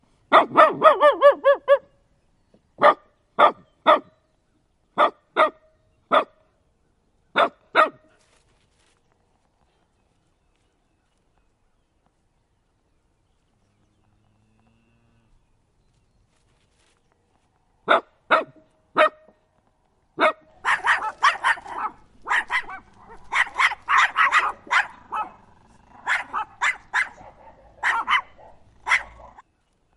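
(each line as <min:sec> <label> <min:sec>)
0:00.2 A dog barks quickly seven times, with the barks turning into howls toward the end. 0:01.9
0:02.7 A dog barks three times with short pauses in between. 0:04.2
0:04.9 A dog barks three times with short pauses in between. 0:06.5
0:07.3 A dog barks twice with a short pause in between. 0:08.1
0:17.7 A dog barks three times with short pauses in between. 0:19.3
0:20.0 A dog barks once. 0:20.4
0:20.5 Two small dogs bark and growl aggressively and repeatedly at each other. 0:29.1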